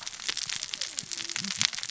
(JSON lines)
{"label": "biophony, cascading saw", "recorder": "SoundTrap 600 or HydroMoth"}